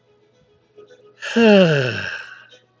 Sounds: Sigh